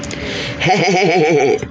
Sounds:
Laughter